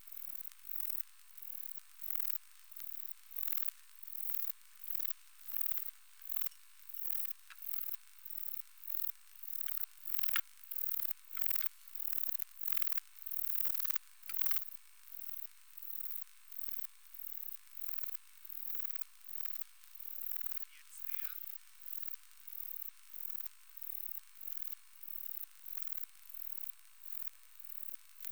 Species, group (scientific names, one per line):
Baetica ustulata
Orthoptera